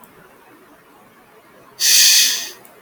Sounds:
Sigh